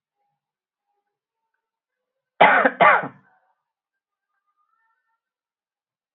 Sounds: Cough